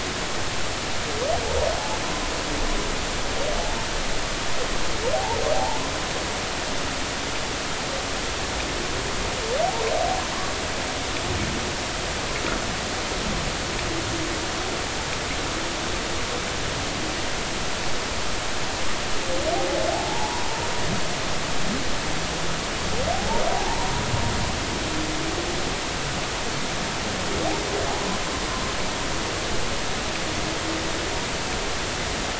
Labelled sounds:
5.1	5.8	humpback whale, 0.80 to 0.99 kHz
19.9	20.5	humpback whale, 0.80 to 1.0 kHz
23.1	23.9	humpback whale, 0.80 to 1.0 kHz

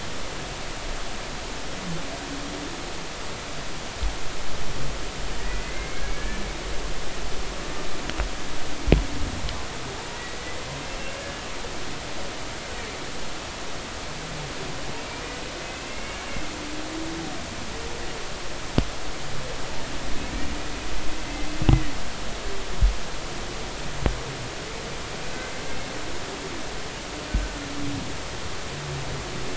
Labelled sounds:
5.4	6.4	humpback whale, 1.6 to 2.3 kHz
15.6	16.2	humpback whale, 2.1 to 2.8 kHz
21.2	21.5	humpback whale, 2.0 to 2.1 kHz
25.3	25.6	humpback whale, 1.5 to 2.1 kHz

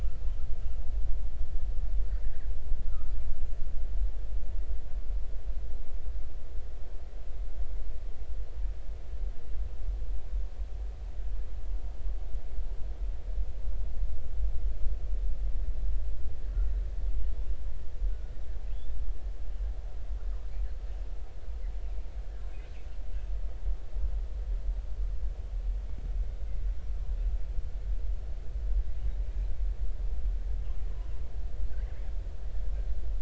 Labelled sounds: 2.8	3.1	killer whale, northern resident, 1.1 to 1.5 kHz
18.7	19.0	killer whale, northern resident, 3.1 to 3.7 kHz

